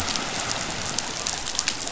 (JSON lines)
{"label": "biophony", "recorder": "SoundTrap 500"}